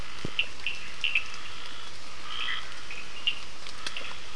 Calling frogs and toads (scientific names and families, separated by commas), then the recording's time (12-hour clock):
Sphaenorhynchus surdus (Hylidae), Scinax perereca (Hylidae)
7:30pm